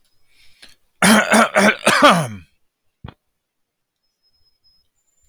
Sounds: Cough